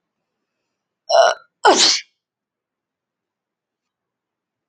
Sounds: Sneeze